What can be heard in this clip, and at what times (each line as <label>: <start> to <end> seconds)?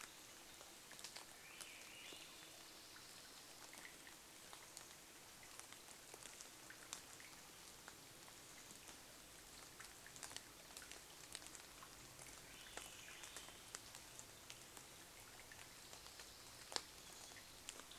Swainson's Thrush song: 0 to 4 seconds
rain: 0 to 18 seconds
Swainson's Thrush song: 12 to 14 seconds
unidentified sound: 14 to 18 seconds